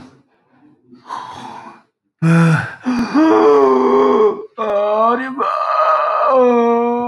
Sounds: Sigh